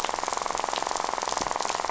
{"label": "biophony, rattle", "recorder": "SoundTrap 500"}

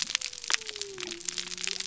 {"label": "biophony", "recorder": "SoundTrap 300"}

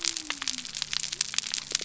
{"label": "biophony", "recorder": "SoundTrap 300"}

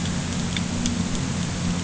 {"label": "anthrophony, boat engine", "recorder": "HydroMoth"}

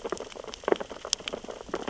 {"label": "biophony, sea urchins (Echinidae)", "recorder": "SoundTrap 600 or HydroMoth"}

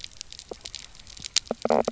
{"label": "biophony, knock croak", "recorder": "SoundTrap 300"}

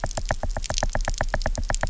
{"label": "biophony, knock", "recorder": "SoundTrap 300"}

